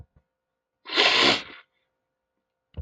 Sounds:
Sniff